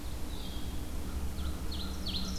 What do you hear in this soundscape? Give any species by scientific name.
Vireo solitarius, Seiurus aurocapilla, Corvus brachyrhynchos